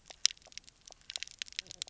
{"label": "biophony, knock croak", "recorder": "SoundTrap 300"}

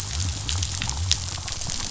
{"label": "biophony", "recorder": "SoundTrap 500"}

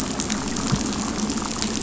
{"label": "biophony, damselfish", "recorder": "SoundTrap 500"}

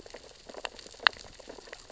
{"label": "biophony, sea urchins (Echinidae)", "recorder": "SoundTrap 600 or HydroMoth"}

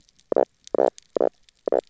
{"label": "biophony, knock croak", "recorder": "SoundTrap 300"}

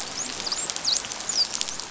{"label": "biophony, dolphin", "recorder": "SoundTrap 500"}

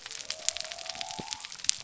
{"label": "biophony", "recorder": "SoundTrap 300"}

